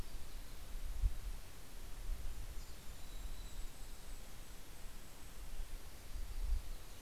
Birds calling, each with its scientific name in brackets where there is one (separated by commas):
Mountain Chickadee (Poecile gambeli), Yellow-rumped Warbler (Setophaga coronata), Golden-crowned Kinglet (Regulus satrapa)